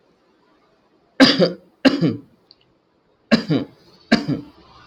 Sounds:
Cough